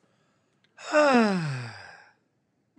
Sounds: Sigh